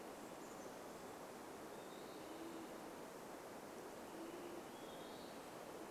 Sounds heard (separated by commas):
Olive-sided Flycatcher song, Olive-sided Flycatcher call, Chestnut-backed Chickadee call, Western Wood-Pewee song, Band-tailed Pigeon call